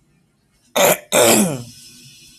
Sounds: Throat clearing